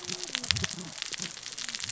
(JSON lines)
{"label": "biophony, cascading saw", "recorder": "SoundTrap 600 or HydroMoth"}